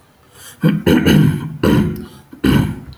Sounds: Throat clearing